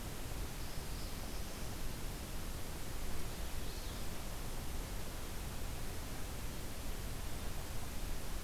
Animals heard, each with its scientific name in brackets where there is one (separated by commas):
Black-throated Blue Warbler (Setophaga caerulescens)